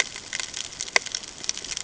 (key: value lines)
label: ambient
recorder: HydroMoth